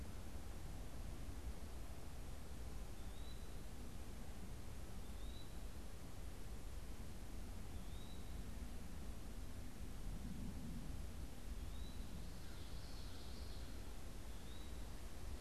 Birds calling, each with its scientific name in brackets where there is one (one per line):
Common Yellowthroat (Geothlypis trichas)
Eastern Wood-Pewee (Contopus virens)